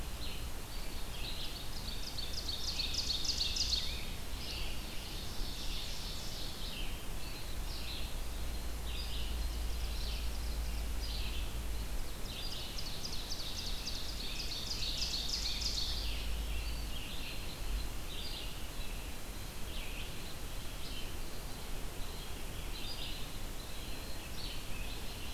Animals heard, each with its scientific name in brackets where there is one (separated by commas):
Red-eyed Vireo (Vireo olivaceus), Ovenbird (Seiurus aurocapilla), Scarlet Tanager (Piranga olivacea)